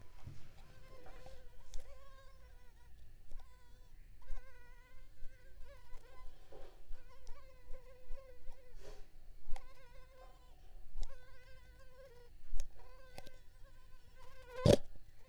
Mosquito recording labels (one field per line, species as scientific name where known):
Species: Culex pipiens complex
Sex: female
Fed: unfed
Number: one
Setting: cup